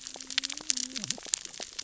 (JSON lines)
{"label": "biophony, cascading saw", "recorder": "SoundTrap 600 or HydroMoth"}